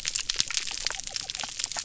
{"label": "biophony", "recorder": "SoundTrap 300"}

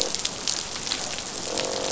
{"label": "biophony, croak", "recorder": "SoundTrap 500"}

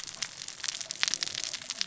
{"label": "biophony, cascading saw", "recorder": "SoundTrap 600 or HydroMoth"}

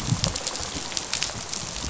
{"label": "biophony, rattle response", "recorder": "SoundTrap 500"}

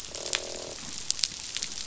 {"label": "biophony, croak", "recorder": "SoundTrap 500"}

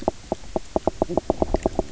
{"label": "biophony, knock croak", "recorder": "SoundTrap 300"}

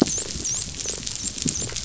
{"label": "biophony", "recorder": "SoundTrap 500"}
{"label": "biophony, dolphin", "recorder": "SoundTrap 500"}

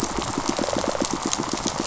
{"label": "biophony, pulse", "recorder": "SoundTrap 500"}
{"label": "biophony, rattle response", "recorder": "SoundTrap 500"}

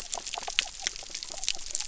{"label": "biophony", "recorder": "SoundTrap 300"}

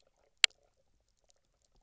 {"label": "biophony, knock croak", "recorder": "SoundTrap 300"}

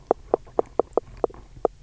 {"label": "biophony, knock", "recorder": "SoundTrap 300"}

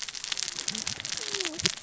{"label": "biophony, cascading saw", "recorder": "SoundTrap 600 or HydroMoth"}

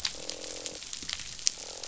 {"label": "biophony, croak", "recorder": "SoundTrap 500"}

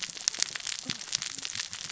{"label": "biophony, cascading saw", "recorder": "SoundTrap 600 or HydroMoth"}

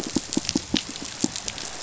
{"label": "biophony, pulse", "recorder": "SoundTrap 500"}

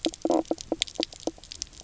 {"label": "biophony, knock croak", "recorder": "SoundTrap 300"}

